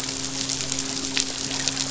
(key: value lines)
label: biophony, midshipman
recorder: SoundTrap 500